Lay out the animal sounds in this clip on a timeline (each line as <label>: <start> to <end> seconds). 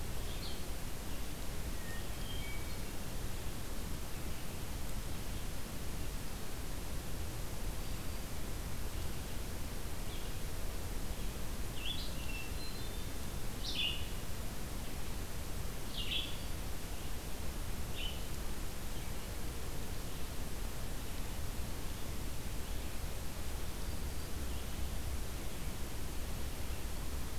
Red-eyed Vireo (Vireo olivaceus): 0.0 to 0.7 seconds
Hermit Thrush (Catharus guttatus): 1.7 to 3.2 seconds
Black-throated Green Warbler (Setophaga virens): 7.6 to 8.6 seconds
Red-eyed Vireo (Vireo olivaceus): 11.3 to 27.4 seconds
Hermit Thrush (Catharus guttatus): 12.2 to 13.2 seconds
Black-throated Green Warbler (Setophaga virens): 23.7 to 24.4 seconds